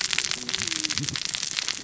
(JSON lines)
{"label": "biophony, cascading saw", "recorder": "SoundTrap 600 or HydroMoth"}